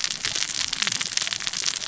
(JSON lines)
{"label": "biophony, cascading saw", "recorder": "SoundTrap 600 or HydroMoth"}